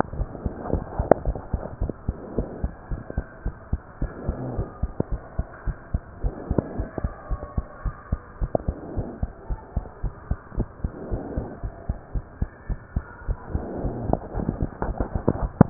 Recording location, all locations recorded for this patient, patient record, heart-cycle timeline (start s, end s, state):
pulmonary valve (PV)
aortic valve (AV)+pulmonary valve (PV)+tricuspid valve (TV)+mitral valve (MV)
#Age: Child
#Sex: Male
#Height: 109.0 cm
#Weight: 25.5 kg
#Pregnancy status: False
#Murmur: Absent
#Murmur locations: nan
#Most audible location: nan
#Systolic murmur timing: nan
#Systolic murmur shape: nan
#Systolic murmur grading: nan
#Systolic murmur pitch: nan
#Systolic murmur quality: nan
#Diastolic murmur timing: nan
#Diastolic murmur shape: nan
#Diastolic murmur grading: nan
#Diastolic murmur pitch: nan
#Diastolic murmur quality: nan
#Outcome: Normal
#Campaign: 2015 screening campaign
0.00	0.14	unannotated
0.14	0.28	S1
0.28	0.42	systole
0.42	0.56	S2
0.56	0.70	diastole
0.70	0.84	S1
0.84	0.92	systole
0.92	1.08	S2
1.08	1.24	diastole
1.24	1.36	S1
1.36	1.50	systole
1.50	1.64	S2
1.64	1.80	diastole
1.80	1.94	S1
1.94	2.04	systole
2.04	2.16	S2
2.16	2.34	diastole
2.34	2.50	S1
2.50	2.60	systole
2.60	2.72	S2
2.72	2.88	diastole
2.88	3.02	S1
3.02	3.14	systole
3.14	3.24	S2
3.24	3.42	diastole
3.42	3.54	S1
3.54	3.68	systole
3.68	3.82	S2
3.82	3.98	diastole
3.98	4.12	S1
4.12	4.26	systole
4.26	4.36	S2
4.36	4.52	diastole
4.52	4.68	S1
4.68	4.80	systole
4.80	4.94	S2
4.94	5.08	diastole
5.08	5.20	S1
5.20	5.34	systole
5.34	5.46	S2
5.46	5.64	diastole
5.64	5.76	S1
5.76	5.90	systole
5.90	6.04	S2
6.04	6.22	diastole
6.22	6.36	S1
6.36	6.48	systole
6.48	6.62	S2
6.62	6.76	diastole
6.76	6.88	S1
6.88	6.98	systole
6.98	7.12	S2
7.12	7.27	diastole
7.27	7.40	S1
7.40	7.54	systole
7.54	7.66	S2
7.66	7.82	diastole
7.82	7.94	S1
7.94	8.08	systole
8.08	8.20	S2
8.20	8.38	diastole
8.38	8.50	S1
8.50	8.64	systole
8.64	8.76	S2
8.76	8.92	diastole
8.92	9.06	S1
9.06	9.19	systole
9.19	9.32	S2
9.32	9.47	diastole
9.47	9.60	S1
9.60	9.73	systole
9.73	9.86	S2
9.86	10.01	diastole
10.01	10.14	S1
10.14	10.27	systole
10.27	10.40	S2
10.40	10.53	diastole
10.53	10.68	S1
10.68	10.80	systole
10.80	10.92	S2
10.92	11.10	diastole
11.10	11.24	S1
11.24	11.34	systole
11.34	11.48	S2
11.48	11.60	diastole
11.60	11.72	S1
11.72	11.86	systole
11.86	11.98	S2
11.98	12.11	diastole
12.11	12.24	S1
12.24	12.38	systole
12.38	12.52	S2
12.52	12.66	diastole
12.66	12.78	S1
12.78	12.92	systole
12.92	13.06	S2
13.06	15.70	unannotated